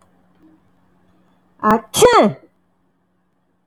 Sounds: Sneeze